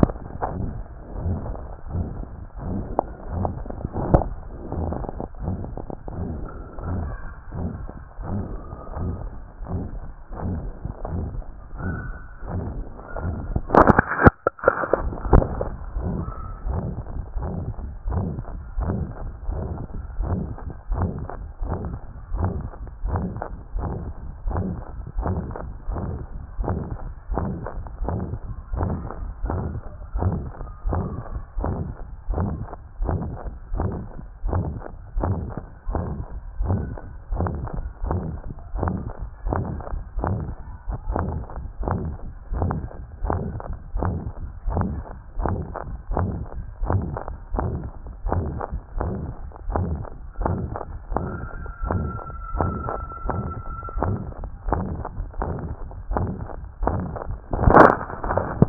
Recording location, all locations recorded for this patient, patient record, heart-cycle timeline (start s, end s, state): mitral valve (MV)
aortic valve (AV)+pulmonary valve (PV)+tricuspid valve (TV)+mitral valve (MV)+other location
#Age: nan
#Sex: Male
#Height: 163.0 cm
#Weight: 73.0 kg
#Pregnancy status: False
#Murmur: Present
#Murmur locations: aortic valve (AV)+mitral valve (MV)+pulmonary valve (PV)+other location+tricuspid valve (TV)
#Most audible location: mitral valve (MV)
#Systolic murmur timing: Holosystolic
#Systolic murmur shape: Decrescendo
#Systolic murmur grading: III/VI or higher
#Systolic murmur pitch: Medium
#Systolic murmur quality: Harsh
#Diastolic murmur timing: nan
#Diastolic murmur shape: nan
#Diastolic murmur grading: nan
#Diastolic murmur pitch: nan
#Diastolic murmur quality: nan
#Outcome: Abnormal
#Campaign: 2014 screening campaign
0.00	0.06	systole
0.06	0.12	S2
0.12	0.58	diastole
0.58	0.70	S1
0.70	0.76	systole
0.76	0.84	S2
0.84	1.22	diastole
1.22	1.38	S1
1.38	1.48	systole
1.48	1.56	S2
1.56	1.94	diastole
1.94	2.06	S1
2.06	2.18	systole
2.18	2.28	S2
2.28	2.68	diastole
2.68	2.82	S1
2.82	2.96	systole
2.96	3.02	S2
3.02	3.34	diastole
3.34	3.50	S1
3.50	3.66	systole
3.66	3.68	S2
3.68	3.98	diastole
3.98	4.20	S1
4.20	4.26	systole
4.26	4.34	S2
4.34	4.78	diastole
4.78	4.92	S1
4.92	5.08	systole
5.08	5.10	S2
5.10	5.44	diastole
5.44	5.58	S1
5.58	5.72	systole
5.72	5.82	S2
5.82	6.16	diastole
6.16	6.28	S1
6.28	6.38	systole
6.38	6.48	S2
6.48	6.86	diastole
6.86	7.04	S1
7.04	7.18	systole
7.18	7.20	S2
7.20	7.58	diastole
7.58	7.70	S1
7.70	7.80	systole
7.80	7.90	S2
7.90	8.30	diastole
8.30	8.42	S1
8.42	8.52	systole
8.52	8.62	S2
8.62	9.00	diastole
9.00	9.14	S1
9.14	9.32	systole
9.32	9.34	S2
9.34	9.72	diastole
9.72	9.84	S1
9.84	9.94	systole
9.94	10.04	S2
10.04	10.44	diastole
10.44	10.58	S1
10.58	10.84	systole
10.84	10.88	S2
10.88	11.12	diastole
11.12	11.26	S1
11.26	11.36	systole
11.36	11.44	S2
11.44	11.84	diastole
11.84	11.96	S1
11.96	12.06	systole
12.06	12.16	S2
12.16	12.50	diastole
12.50	12.64	S1
12.64	12.76	systole
12.76	12.84	S2
12.84	13.24	diastole
13.24	13.36	S1
13.36	13.50	systole
13.50	13.62	S2
13.62	13.92	diastole
13.92	14.02	S1
14.02	14.22	systole
14.22	14.30	S2
14.30	14.72	diastole
14.72	14.74	S1
14.74	14.98	systole
14.98	15.10	S2
15.10	15.28	diastole
15.28	15.44	S1
15.44	15.56	systole
15.56	15.64	S2
15.64	15.96	diastole
15.96	16.10	S1
16.10	16.20	systole
16.20	16.32	S2
16.32	16.66	diastole
16.66	16.82	S1
16.82	16.98	systole
16.98	17.04	S2
17.04	17.38	diastole
17.38	17.50	S1
17.50	17.60	systole
17.60	17.72	S2
17.72	18.10	diastole
18.10	18.26	S1
18.26	18.36	systole
18.36	18.44	S2
18.44	18.78	diastole
18.78	18.96	S1
18.96	19.00	systole
19.00	19.08	S2
19.08	19.48	diastole
19.48	19.62	S1
19.62	19.72	systole
19.72	19.82	S2
19.82	20.20	diastole
20.20	20.40	S1
20.40	20.48	systole
20.48	20.56	S2
20.56	20.92	diastole
20.92	21.10	S1
21.10	21.20	systole
21.20	21.28	S2
21.28	21.62	diastole
21.62	21.78	S1
21.78	21.88	systole
21.88	21.98	S2
21.98	22.34	diastole
22.34	22.52	S1
22.52	22.60	systole
22.60	22.70	S2
22.70	23.04	diastole
23.04	23.24	S1
23.24	23.32	systole
23.32	23.42	S2
23.42	23.76	diastole
23.76	23.90	S1
23.90	24.04	systole
24.04	24.14	S2
24.14	24.46	diastole
24.46	24.62	S1
24.62	24.70	systole
24.70	24.82	S2
24.82	25.18	diastole
25.18	25.38	S1
25.38	25.48	systole
25.48	25.56	S2
25.56	25.88	diastole
25.88	26.00	S1
26.00	26.10	systole
26.10	26.20	S2
26.20	26.62	diastole
26.62	26.78	S1
26.78	26.92	systole
26.92	26.98	S2
26.98	27.32	diastole
27.32	27.48	S1
27.48	27.64	systole
27.64	27.68	S2
27.68	28.04	diastole
28.04	28.18	S1
28.18	28.30	systole
28.30	28.38	S2
28.38	28.74	diastole
28.74	28.94	S1
28.94	29.20	systole
29.20	29.28	S2
29.28	29.46	diastole
29.46	29.62	S1
29.62	29.72	systole
29.72	29.80	S2
29.80	30.16	diastole
30.16	30.36	S1
30.36	30.42	systole
30.42	30.52	S2
30.52	30.86	diastole
30.86	31.06	S1
31.06	31.20	systole
31.20	31.22	S2
31.22	31.58	diastole
31.58	31.74	S1
31.74	31.86	systole
31.86	31.92	S2
31.92	32.30	diastole
32.30	32.48	S1
32.48	32.60	systole
32.60	32.66	S2
32.66	33.02	diastole
33.02	33.20	S1
33.20	33.36	systole
33.36	33.38	S2
33.38	33.74	diastole
33.74	33.90	S1
33.90	34.08	systole
34.08	34.10	S2
34.10	34.46	diastole
34.46	34.64	S1
34.64	34.68	systole
34.68	34.80	S2
34.80	35.16	diastole
35.16	35.38	S1
35.38	35.52	systole
35.52	35.54	S2
35.54	35.90	diastole
35.90	36.04	S1
36.04	36.12	systole
36.12	36.24	S2
36.24	36.60	diastole
36.60	36.82	S1
36.82	36.92	systole
36.92	37.00	S2
37.00	37.32	diastole
37.32	37.50	S1
37.50	37.58	systole
37.58	37.66	S2
37.66	38.06	diastole
38.06	38.20	S1
38.20	38.30	systole
38.30	38.38	S2
38.38	38.76	diastole
38.76	38.96	S1
38.96	39.12	systole
39.12	39.14	S2
39.14	39.46	diastole
39.46	39.62	S1
39.62	39.70	systole
39.70	39.80	S2
39.80	40.22	diastole
40.22	40.36	S1
40.36	40.48	systole
40.48	40.54	S2
40.54	41.08	diastole
41.08	41.22	S1
41.22	41.34	systole
41.34	41.40	S2
41.40	41.82	diastole
41.82	41.98	S1
41.98	42.06	systole
42.06	42.16	S2
42.16	42.52	diastole
42.52	42.72	S1
42.72	42.76	systole
42.76	42.88	S2
42.88	43.24	diastole
43.24	43.40	S1
43.40	43.48	systole
43.48	43.60	S2
43.60	43.98	diastole
43.98	44.16	S1
44.16	44.26	systole
44.26	44.32	S2
44.32	44.68	diastole
44.68	44.86	S1
44.86	44.94	systole
44.94	45.04	S2
45.04	45.40	diastole
45.40	45.56	S1
45.56	45.68	systole
45.68	45.74	S2
45.74	46.12	diastole
46.12	46.30	S1
46.30	46.36	systole
46.36	46.46	S2
46.46	46.84	diastole
46.84	47.04	S1
47.04	47.10	systole
47.10	47.20	S2
47.20	47.54	diastole
47.54	47.70	S1
47.70	47.82	systole
47.82	47.90	S2
47.90	48.28	diastole
48.28	48.48	S1
48.48	48.72	systole
48.72	48.80	S2
48.80	49.00	diastole
49.00	49.12	S1
49.12	49.22	systole
49.22	49.32	S2
49.32	49.68	diastole
49.68	49.86	S1
49.86	49.92	systole
49.92	50.04	S2
50.04	50.40	diastole
50.40	50.58	S1
50.58	50.70	systole
50.70	50.76	S2
50.76	51.12	diastole
51.12	51.26	S1
51.26	51.40	systole
51.40	51.48	S2
51.48	51.84	diastole
51.84	52.00	S1
52.00	52.02	systole
52.02	52.18	S2
52.18	52.56	diastole
52.56	52.74	S1
52.74	52.90	systole
52.90	52.92	S2
52.92	53.26	diastole
53.26	53.40	S1
53.40	53.46	systole
53.46	53.62	S2
53.62	53.98	diastole
53.98	54.18	S1
54.18	54.40	systole
54.40	54.48	S2
54.48	54.68	diastole
54.68	54.82	S1
54.82	54.90	systole
54.90	55.00	S2
55.00	55.20	diastole
55.20	55.28	S1
55.28	55.42	systole
55.42	55.54	S2
55.54	56.12	diastole
56.12	56.28	S1
56.28	56.42	systole
56.42	56.50	S2
56.50	56.84	diastole
56.84	57.00	S1
57.00	57.04	systole
57.04	57.12	S2
57.12	57.56	diastole
57.56	57.64	S1
57.64	57.72	systole
57.72	57.94	S2
57.94	58.30	diastole
58.30	58.42	S1
58.42	58.58	systole
58.58	58.69	S2